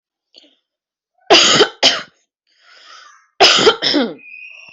{"expert_labels": [{"quality": "good", "cough_type": "dry", "dyspnea": false, "wheezing": false, "stridor": false, "choking": false, "congestion": false, "nothing": true, "diagnosis": "upper respiratory tract infection", "severity": "mild"}], "age": 32, "gender": "female", "respiratory_condition": false, "fever_muscle_pain": false, "status": "healthy"}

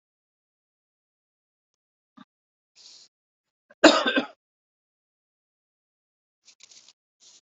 {"expert_labels": [{"quality": "good", "cough_type": "dry", "dyspnea": false, "wheezing": false, "stridor": false, "choking": false, "congestion": false, "nothing": true, "diagnosis": "COVID-19", "severity": "mild"}], "age": 65, "gender": "male", "respiratory_condition": false, "fever_muscle_pain": false, "status": "symptomatic"}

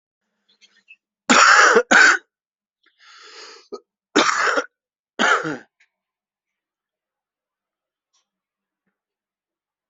{"expert_labels": [{"quality": "good", "cough_type": "wet", "dyspnea": false, "wheezing": false, "stridor": false, "choking": false, "congestion": false, "nothing": true, "diagnosis": "lower respiratory tract infection", "severity": "mild"}], "age": 40, "gender": "male", "respiratory_condition": false, "fever_muscle_pain": false, "status": "symptomatic"}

